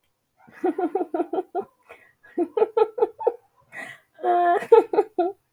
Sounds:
Laughter